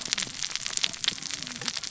{"label": "biophony, cascading saw", "recorder": "SoundTrap 600 or HydroMoth"}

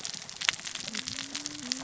{"label": "biophony, cascading saw", "recorder": "SoundTrap 600 or HydroMoth"}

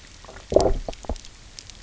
{"label": "biophony, low growl", "recorder": "SoundTrap 300"}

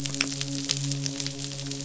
{"label": "biophony, midshipman", "recorder": "SoundTrap 500"}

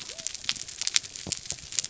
{"label": "biophony", "recorder": "SoundTrap 300"}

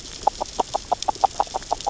{"label": "biophony, grazing", "recorder": "SoundTrap 600 or HydroMoth"}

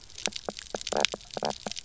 {"label": "biophony, knock croak", "recorder": "SoundTrap 300"}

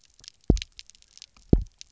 {"label": "biophony, double pulse", "recorder": "SoundTrap 300"}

